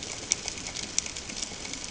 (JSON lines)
{"label": "ambient", "recorder": "HydroMoth"}